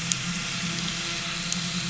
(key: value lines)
label: anthrophony, boat engine
recorder: SoundTrap 500